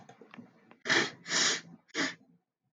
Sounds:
Sniff